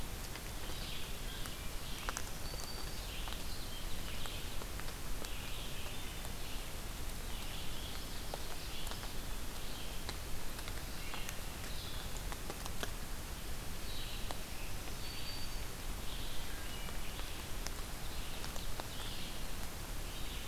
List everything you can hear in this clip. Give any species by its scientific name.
Vireo olivaceus, Setophaga virens, Seiurus aurocapilla